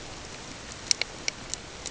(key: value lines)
label: ambient
recorder: HydroMoth